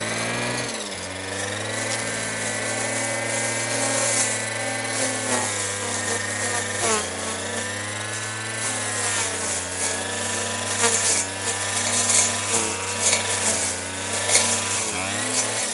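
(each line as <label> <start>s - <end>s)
Loud, high-pitched mechanical sound of a lawnmower cutting grass, sharp, steady, and intense. 0.0s - 15.7s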